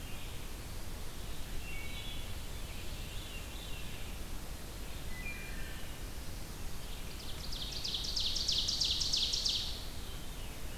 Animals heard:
Red-eyed Vireo (Vireo olivaceus), Wood Thrush (Hylocichla mustelina), Ovenbird (Seiurus aurocapilla), Veery (Catharus fuscescens)

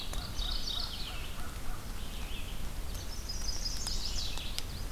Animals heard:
American Crow (Corvus brachyrhynchos), Mourning Warbler (Geothlypis philadelphia), Chestnut-sided Warbler (Setophaga pensylvanica), Red-eyed Vireo (Vireo olivaceus), Yellow-rumped Warbler (Setophaga coronata)

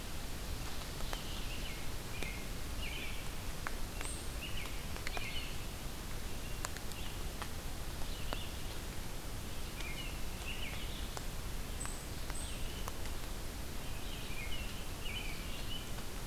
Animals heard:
American Robin (Turdus migratorius), Red-eyed Vireo (Vireo olivaceus)

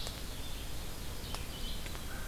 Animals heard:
Red-eyed Vireo (Vireo olivaceus), Ovenbird (Seiurus aurocapilla)

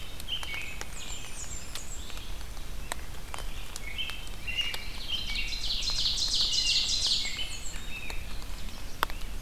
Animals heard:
Blackburnian Warbler (Setophaga fusca), Red-eyed Vireo (Vireo olivaceus), Black-capped Chickadee (Poecile atricapillus), Ovenbird (Seiurus aurocapilla), American Robin (Turdus migratorius)

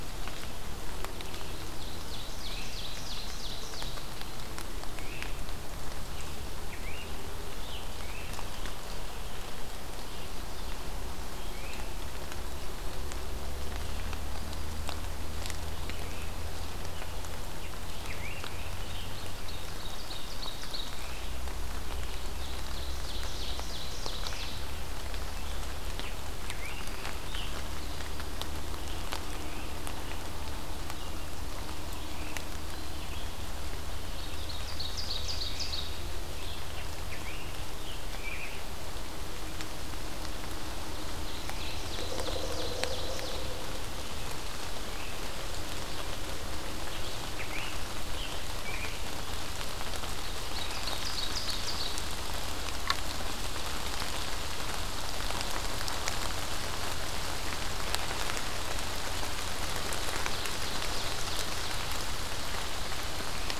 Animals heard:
Scarlet Tanager (Piranga olivacea), Ovenbird (Seiurus aurocapilla), Great Crested Flycatcher (Myiarchus crinitus)

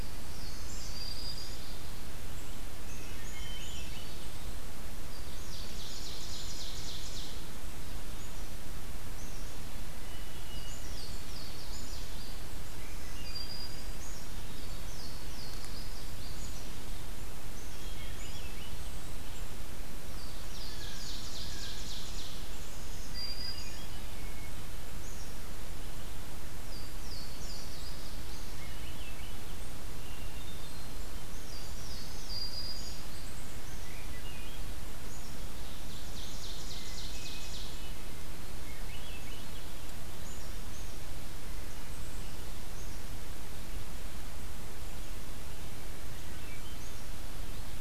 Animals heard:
Swainson's Thrush (Catharus ustulatus), Black-throated Green Warbler (Setophaga virens), Louisiana Waterthrush (Parkesia motacilla), Ovenbird (Seiurus aurocapilla), Hermit Thrush (Catharus guttatus), Black-capped Chickadee (Poecile atricapillus)

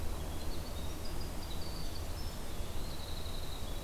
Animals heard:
Winter Wren (Troglodytes hiemalis)

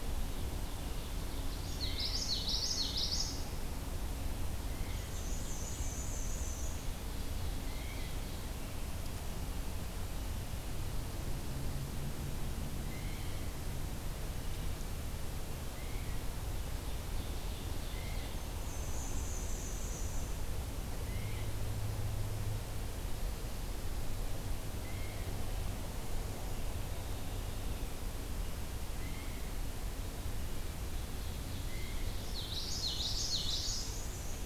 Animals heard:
Blue Jay (Cyanocitta cristata), Common Yellowthroat (Geothlypis trichas), Ovenbird (Seiurus aurocapilla), Black-and-white Warbler (Mniotilta varia)

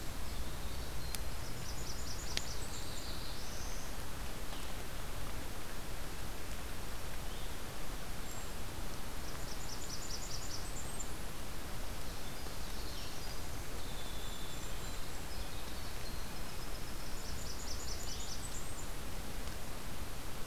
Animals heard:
Winter Wren (Troglodytes hiemalis), Black-throated Blue Warbler (Setophaga caerulescens), Golden-crowned Kinglet (Regulus satrapa), Blackburnian Warbler (Setophaga fusca), Red-breasted Nuthatch (Sitta canadensis)

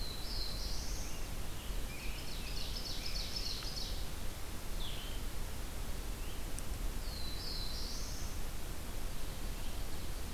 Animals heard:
Ovenbird (Seiurus aurocapilla), Black-throated Blue Warbler (Setophaga caerulescens)

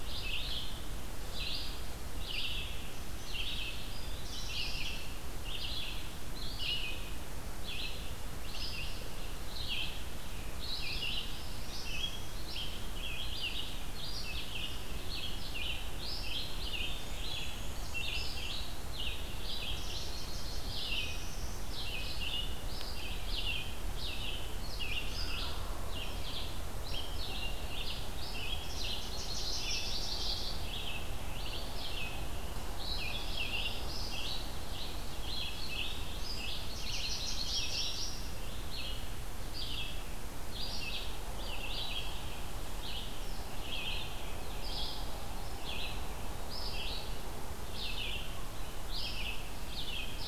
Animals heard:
Nashville Warbler (Leiothlypis ruficapilla), Northern Parula (Setophaga americana), Yellow-rumped Warbler (Setophaga coronata), Red-eyed Vireo (Vireo olivaceus)

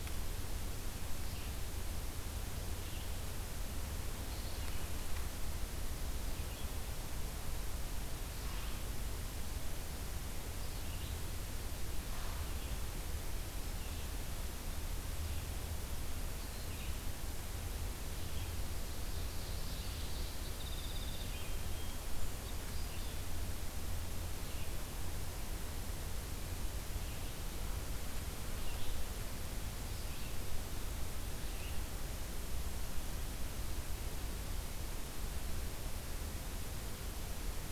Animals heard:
Red-eyed Vireo (Vireo olivaceus), Ovenbird (Seiurus aurocapilla), Song Sparrow (Melospiza melodia)

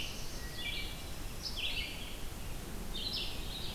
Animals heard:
Black-throated Blue Warbler (Setophaga caerulescens), Wood Thrush (Hylocichla mustelina), Red-eyed Vireo (Vireo olivaceus)

